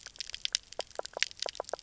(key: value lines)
label: biophony, knock croak
recorder: SoundTrap 300